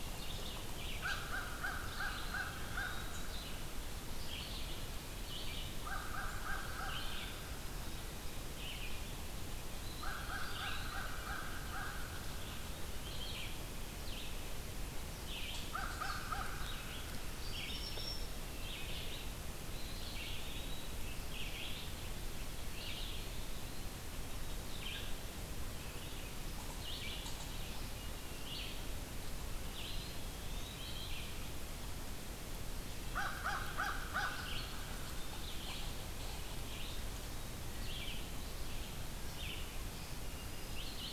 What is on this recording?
Red-eyed Vireo, American Crow, Eastern Wood-Pewee, Black-throated Green Warbler